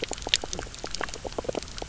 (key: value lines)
label: biophony, knock croak
recorder: SoundTrap 300